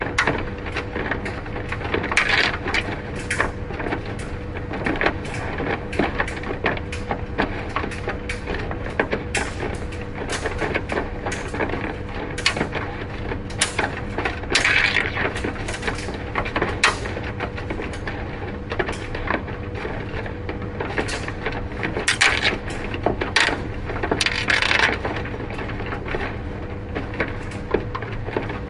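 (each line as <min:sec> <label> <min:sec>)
0:00.0 Metallic rumbling in the background. 0:28.7
0:01.9 A loud sound of plastic hitting glass indoors. 0:04.0
0:04.8 Plastic rotating inside a washing machine. 0:14.1
0:14.4 A loud sound of plastic hitting glass indoors. 0:17.3
0:20.9 A loud sound of plastic hitting glass indoors. 0:25.4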